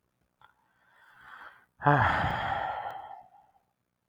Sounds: Sigh